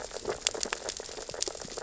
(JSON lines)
{"label": "biophony, sea urchins (Echinidae)", "recorder": "SoundTrap 600 or HydroMoth"}